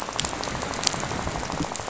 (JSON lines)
{"label": "biophony, rattle", "recorder": "SoundTrap 500"}